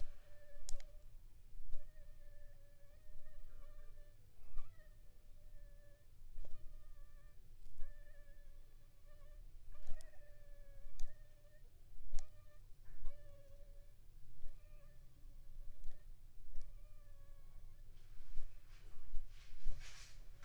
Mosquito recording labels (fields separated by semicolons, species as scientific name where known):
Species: Anopheles gambiae s.l.; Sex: female; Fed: unfed; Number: one; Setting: cup